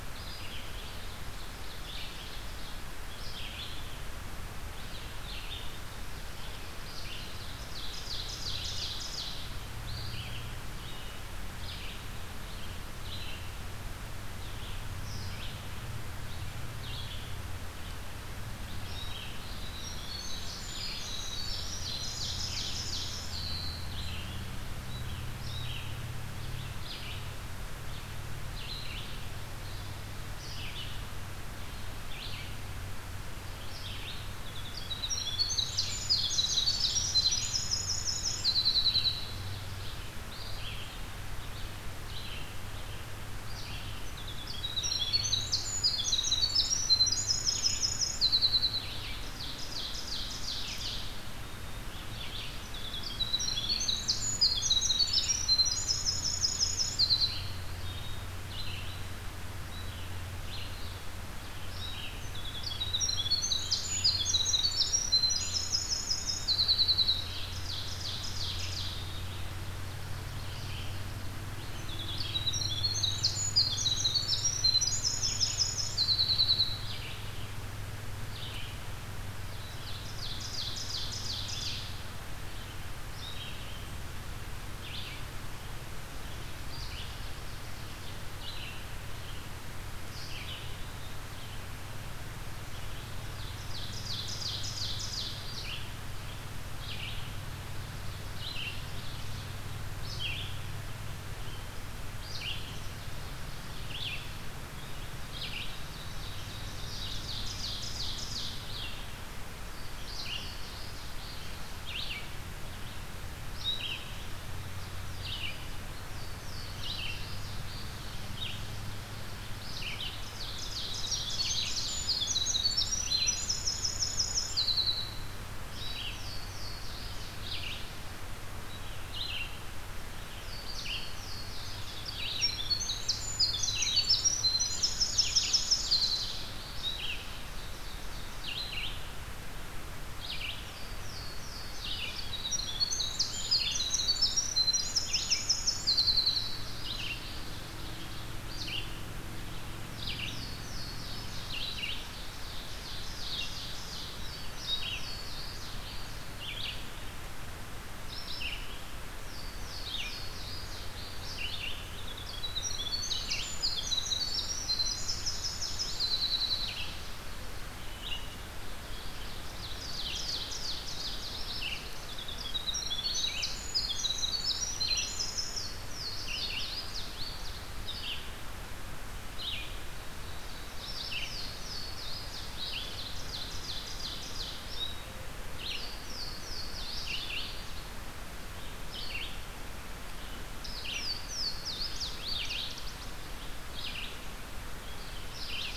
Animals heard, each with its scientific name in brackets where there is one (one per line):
Ovenbird (Seiurus aurocapilla)
Winter Wren (Troglodytes hiemalis)
Louisiana Waterthrush (Parkesia motacilla)
Red-eyed Vireo (Vireo olivaceus)